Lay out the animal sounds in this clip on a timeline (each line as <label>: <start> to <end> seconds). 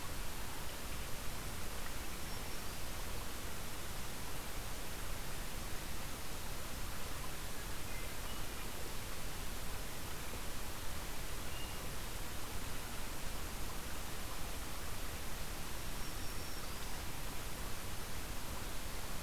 Black-throated Green Warbler (Setophaga virens): 2.1 to 3.1 seconds
Hermit Thrush (Catharus guttatus): 11.4 to 11.9 seconds
Black-throated Green Warbler (Setophaga virens): 15.7 to 17.0 seconds